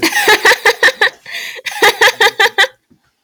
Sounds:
Laughter